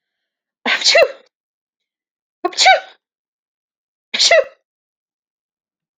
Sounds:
Sneeze